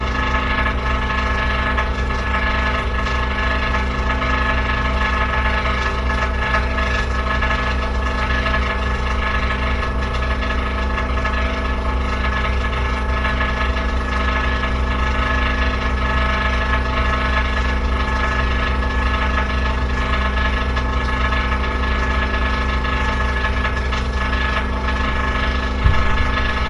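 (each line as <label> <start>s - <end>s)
A drill sounds loudly and continuously nearby in a construction area. 0.0s - 26.7s
Machine sounds coming from construction. 0.0s - 26.7s
Wind blowing with background white noise. 0.0s - 26.7s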